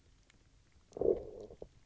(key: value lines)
label: biophony, low growl
recorder: SoundTrap 300